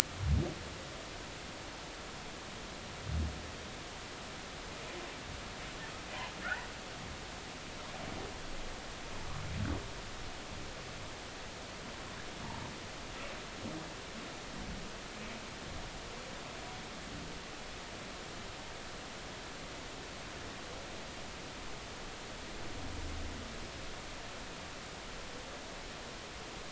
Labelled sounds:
6.4	6.7	humpback whale, 1.2 to 2.0 kHz

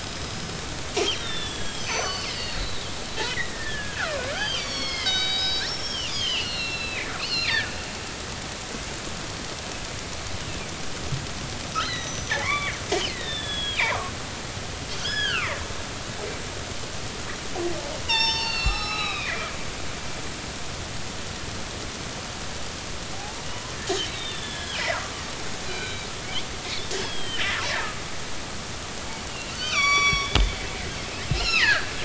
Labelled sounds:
0.0	0.7	killer whale, northern resident, G clan, 5.0 to 5.3 kHz
1.2	2.9	killer whale, northern resident, G clan, 0.99 to 8.0 kHz
3.2	7.7	killer whale, northern resident, G clan, 0.96 to 6.4 kHz
11.7	14.0	killer whale, northern resident, G clan, 0.99 to 6.0 kHz
15.0	15.6	killer whale, northern resident, G clan, 0.99 to 3.5 kHz
18.0	19.5	killer whale, northern resident, G clan, 0.80 to 6.4 kHz
23.5	24.8	killer whale, northern resident, G clan, 0.96 to 4.1 kHz
25.7	26.1	killer whale, northern resident, G clan, 2.2 to 4.9 kHz
27.0	27.4	killer whale, northern resident, G clan, 2.8 to 8.0 kHz
29.3	30.5	killer whale, northern resident, G clan, 1.1 to 7.0 kHz
31.3	31.9	killer whale, northern resident, G clan, 1.2 to 5.2 kHz

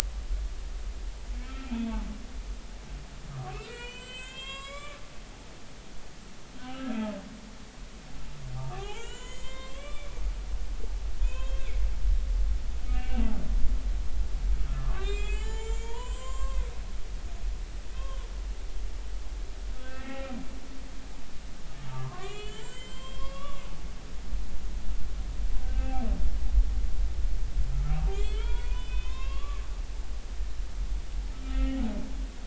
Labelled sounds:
1.4	1.6	humpback whale, 2.1 to 2.4 kHz
3.3	5.5	humpback whale, 0.90 to 8.0 kHz
6.6	7.0	humpback whale, 1.2 to 1.4 kHz
8.6	10.1	humpback whale, 0.80 to 8.0 kHz
11.2	11.7	humpback whale, 0.90 to 7.0 kHz
12.9	13.3	humpback whale, 1.5 to 2.9 kHz
14.7	16.6	humpback whale, 0.83 to 8.0 kHz
18.0	18.2	humpback whale, 2.9 to 3.3 kHz
19.8	20.3	humpback whale, 1.5 to 2.8 kHz
21.9	23.7	humpback whale, 0.96 to 8.0 kHz
25.6	26.1	humpback whale, 0.80 to 2.7 kHz
28.1	29.6	humpback whale, 0.90 to 5.1 kHz
31.3	31.8	humpback whale, 1.2 to 1.9 kHz

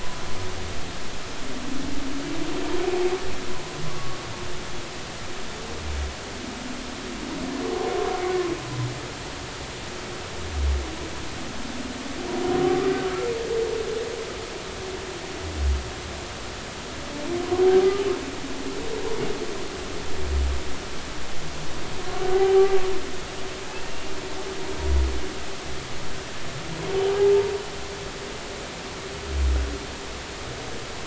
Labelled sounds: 3.9	4.2	humpback whale, 0.99 to 1.2 kHz
22.3	22.8	humpback whale, 0.80 to 0.83 kHz
23.9	24.1	humpback whale, 2.75 to 2.82 kHz

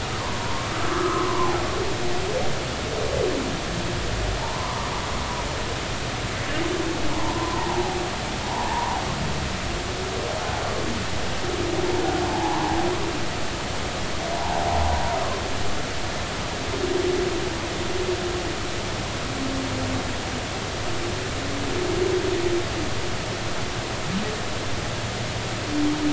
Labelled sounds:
0.2	1.6	humpback whale, 0.80 to 1.4 kHz
4.4	4.9	humpback whale, 0.83 to 1.3 kHz
7.1	7.8	humpback whale, 0.80 to 1.1 kHz
8.7	9.0	humpback whale, 0.83 to 1.1 kHz
12.3	12.8	humpback whale, 0.80 to 1.2 kHz
14.4	14.6	humpback whale, 0.80 to 1.0 kHz

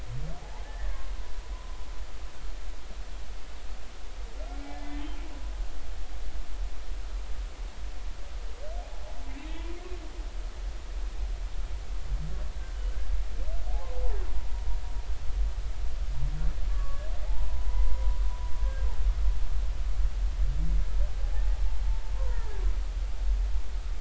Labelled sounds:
0.4	0.9	humpback whale, 0.80 to 2.0 kHz
4.6	4.9	humpback whale, 0.80 to 0.99 kHz
16.7	18.1	humpback whale, 0.80 to 2.1 kHz
18.6	18.9	humpback whale, 1.5 to 1.7 kHz
22.1	22.6	humpback whale, 0.90 to 2.0 kHz

